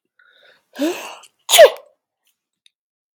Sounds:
Sneeze